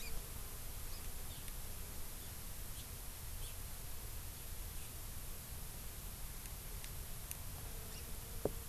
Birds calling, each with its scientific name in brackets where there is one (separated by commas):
Hawaii Amakihi (Chlorodrepanis virens), Japanese Bush Warbler (Horornis diphone)